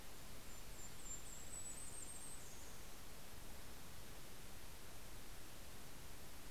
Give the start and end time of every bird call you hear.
0.0s-4.0s: Golden-crowned Kinglet (Regulus satrapa)

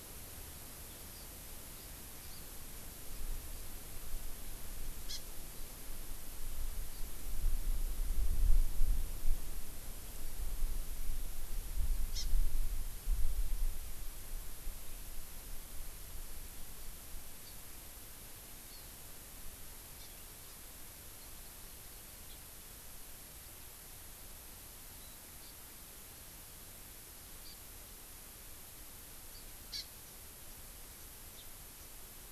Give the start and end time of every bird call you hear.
5.0s-5.3s: Hawaii Amakihi (Chlorodrepanis virens)
12.0s-12.4s: Hawaii Amakihi (Chlorodrepanis virens)
18.6s-19.0s: Hawaii Amakihi (Chlorodrepanis virens)
19.9s-20.1s: Hawaii Amakihi (Chlorodrepanis virens)
29.6s-30.0s: Hawaii Amakihi (Chlorodrepanis virens)

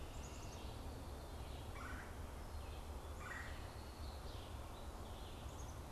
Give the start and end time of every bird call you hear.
0.1s-1.1s: Black-capped Chickadee (Poecile atricapillus)
1.7s-3.7s: Red-bellied Woodpecker (Melanerpes carolinus)

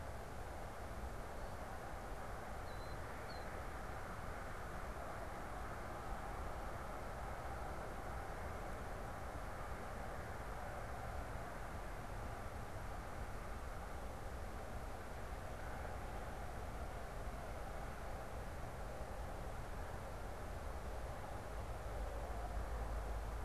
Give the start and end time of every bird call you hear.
2.3s-3.6s: Killdeer (Charadrius vociferus)

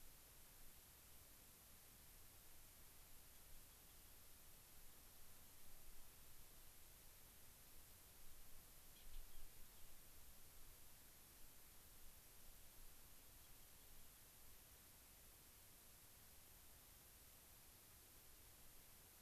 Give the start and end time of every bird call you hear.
3.2s-4.3s: Rock Wren (Salpinctes obsoletus)
13.1s-14.3s: Rock Wren (Salpinctes obsoletus)

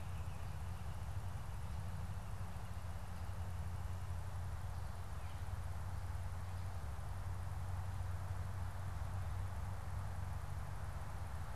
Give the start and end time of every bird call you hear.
0.0s-1.0s: Baltimore Oriole (Icterus galbula)
0.0s-4.4s: Northern Flicker (Colaptes auratus)
5.0s-5.7s: Baltimore Oriole (Icterus galbula)

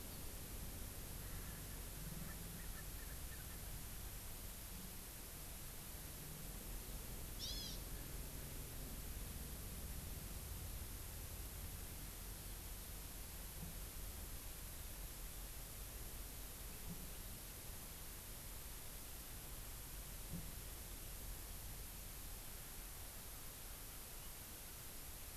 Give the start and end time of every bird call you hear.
1.2s-3.7s: Erckel's Francolin (Pternistis erckelii)
7.4s-7.8s: Hawaii Amakihi (Chlorodrepanis virens)

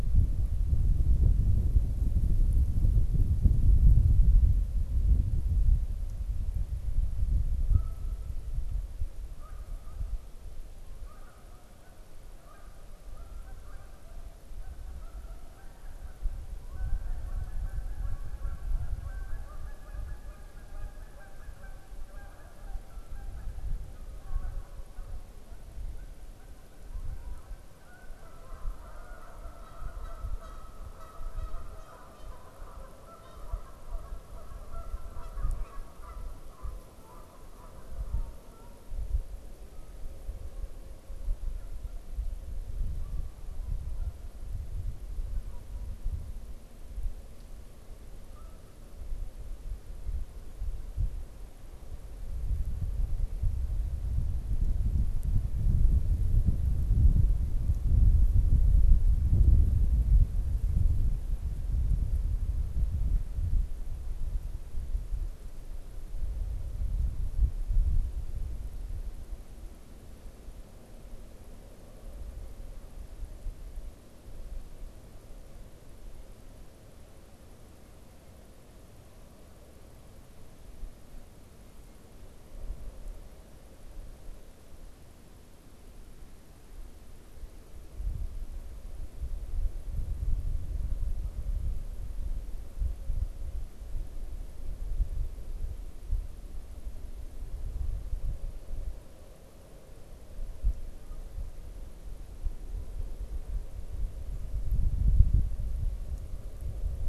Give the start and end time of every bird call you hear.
7.7s-49.0s: Canada Goose (Branta canadensis)

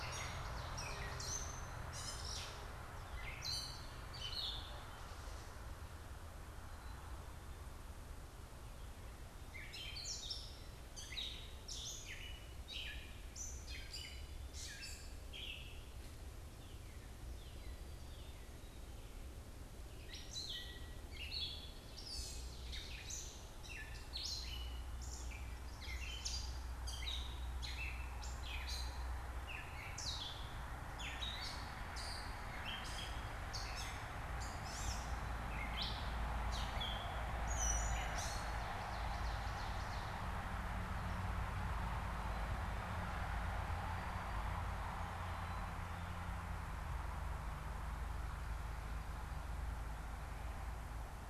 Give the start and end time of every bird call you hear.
0.0s-4.9s: Ovenbird (Seiurus aurocapilla)
9.6s-15.9s: Ovenbird (Seiurus aurocapilla)
20.0s-31.7s: Ovenbird (Seiurus aurocapilla)
31.8s-38.8s: Gray Catbird (Dumetella carolinensis)
38.0s-40.3s: Ovenbird (Seiurus aurocapilla)

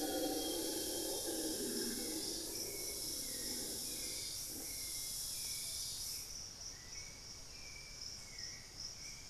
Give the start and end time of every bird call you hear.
0.0s-1.7s: Amazonian Grosbeak (Cyanoloxia rothschildii)
0.0s-9.3s: Hauxwell's Thrush (Turdus hauxwelli)
5.5s-5.9s: unidentified bird

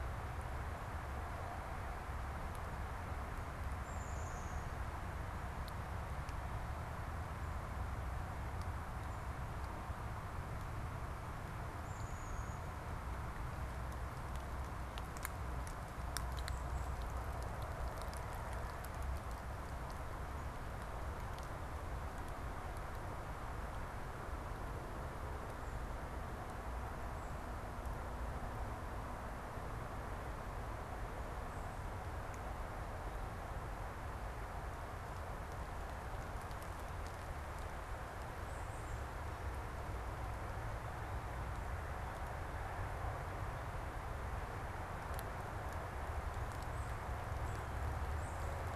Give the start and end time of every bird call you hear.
3.7s-4.9s: Black-capped Chickadee (Poecile atricapillus)
11.6s-12.9s: Black-capped Chickadee (Poecile atricapillus)
16.2s-17.0s: Black-capped Chickadee (Poecile atricapillus)
38.2s-39.3s: Tufted Titmouse (Baeolophus bicolor)
46.1s-48.7s: Tufted Titmouse (Baeolophus bicolor)

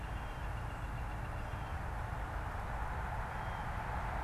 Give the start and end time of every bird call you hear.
0.0s-2.1s: Northern Flicker (Colaptes auratus)
3.1s-4.2s: Blue Jay (Cyanocitta cristata)

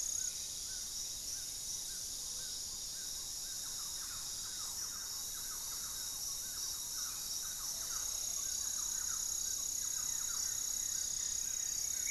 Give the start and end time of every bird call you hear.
0.0s-0.5s: Black-faced Antthrush (Formicarius analis)
0.0s-12.1s: Amazonian Trogon (Trogon ramonianus)
0.7s-1.7s: unidentified bird
1.7s-10.0s: Black-tailed Trogon (Trogon melanurus)
3.0s-10.7s: Thrush-like Wren (Campylorhynchus turdinus)
9.6s-12.1s: Goeldi's Antbird (Akletos goeldii)

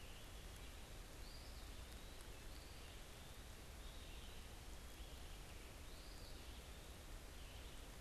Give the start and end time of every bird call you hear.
0.0s-8.0s: Eastern Wood-Pewee (Contopus virens)
0.0s-8.0s: unidentified bird

